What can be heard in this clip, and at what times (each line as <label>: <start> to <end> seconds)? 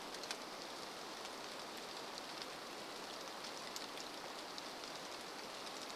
rain: 0 to 6 seconds